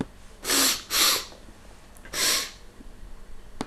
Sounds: Sniff